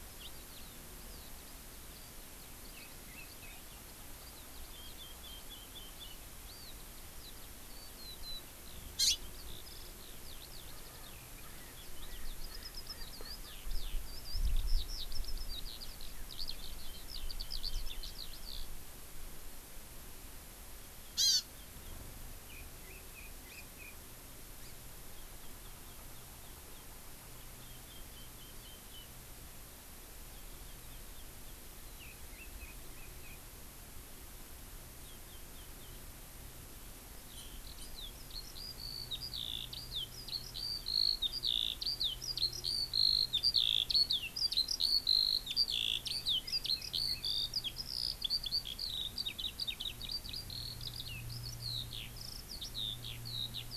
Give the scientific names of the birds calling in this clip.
Alauda arvensis, Haemorhous mexicanus, Garrulax canorus, Chlorodrepanis virens, Pternistis erckelii